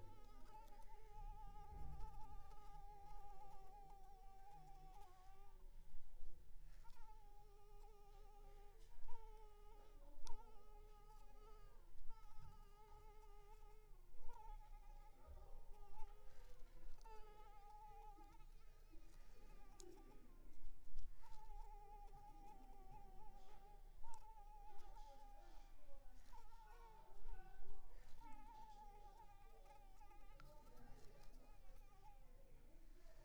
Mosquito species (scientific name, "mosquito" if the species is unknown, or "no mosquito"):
Anopheles arabiensis